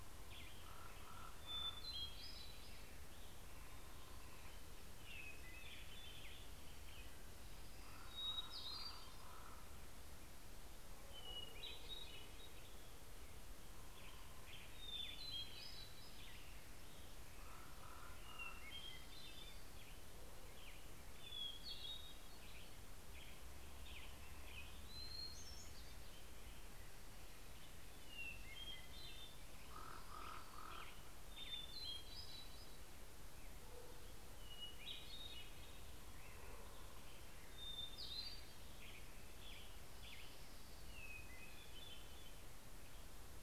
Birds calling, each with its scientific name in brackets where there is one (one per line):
Common Raven (Corvus corax)
Hermit Thrush (Catharus guttatus)
Western Tanager (Piranga ludoviciana)